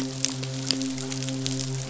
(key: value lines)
label: biophony, midshipman
recorder: SoundTrap 500